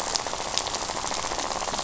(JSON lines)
{"label": "biophony, rattle", "recorder": "SoundTrap 500"}